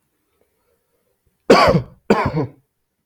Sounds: Cough